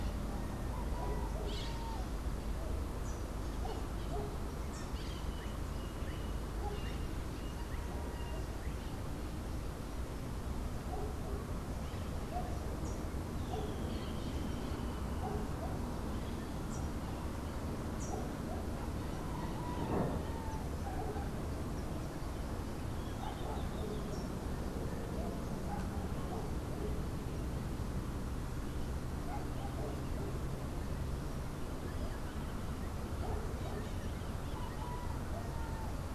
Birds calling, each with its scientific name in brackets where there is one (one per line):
Melodious Blackbird (Dives dives)
Streak-headed Woodcreeper (Lepidocolaptes souleyetii)